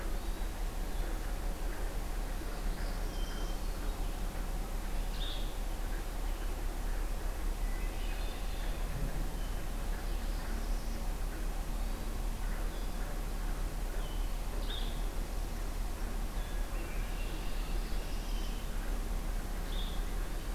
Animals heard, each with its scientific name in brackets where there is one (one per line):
Red-winged Blackbird (Agelaius phoeniceus)
Hermit Thrush (Catharus guttatus)
Blue-headed Vireo (Vireo solitarius)
Northern Parula (Setophaga americana)